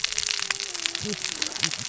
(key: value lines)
label: biophony, cascading saw
recorder: SoundTrap 600 or HydroMoth